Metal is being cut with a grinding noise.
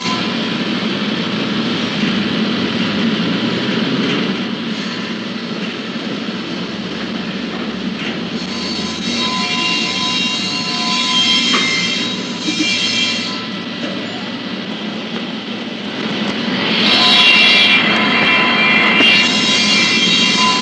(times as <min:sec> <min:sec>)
0:08.7 0:14.0, 0:16.9 0:20.6